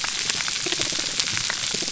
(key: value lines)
label: biophony, pulse
recorder: SoundTrap 300